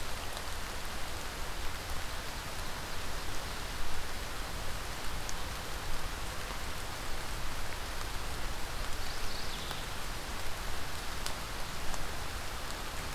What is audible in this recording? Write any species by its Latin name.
Geothlypis philadelphia